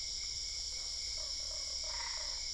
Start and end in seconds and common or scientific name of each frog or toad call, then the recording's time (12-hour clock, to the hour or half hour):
0.8	2.4	Usina tree frog
1.9	2.5	Boana albopunctata
~11pm